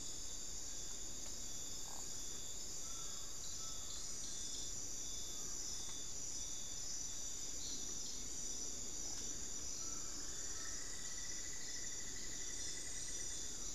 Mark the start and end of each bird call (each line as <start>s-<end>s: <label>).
0.0s-6.2s: Bartlett's Tinamou (Crypturellus bartletti)
0.0s-10.9s: Buckley's Forest-Falcon (Micrastur buckleyi)
10.0s-13.7s: Cinnamon-throated Woodcreeper (Dendrexetastes rufigula)